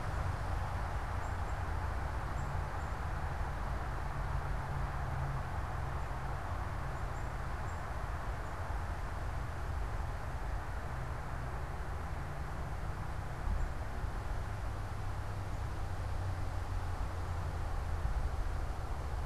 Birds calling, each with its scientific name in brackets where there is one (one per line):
Black-capped Chickadee (Poecile atricapillus)